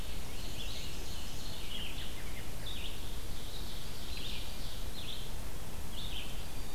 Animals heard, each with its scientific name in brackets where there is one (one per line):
Ovenbird (Seiurus aurocapilla)
Black-and-white Warbler (Mniotilta varia)
Red-eyed Vireo (Vireo olivaceus)
American Robin (Turdus migratorius)